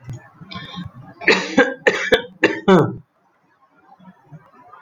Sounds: Cough